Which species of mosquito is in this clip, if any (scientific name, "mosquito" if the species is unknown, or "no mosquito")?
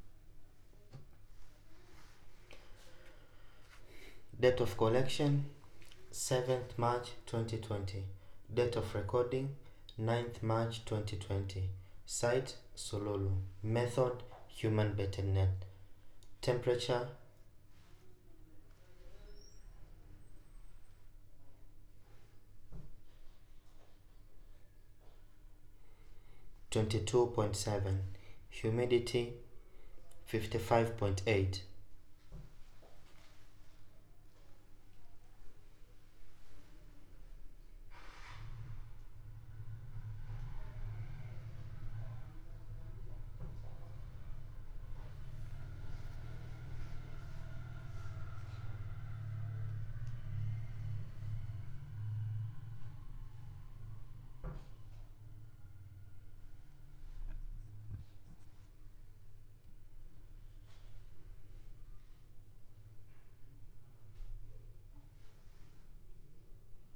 no mosquito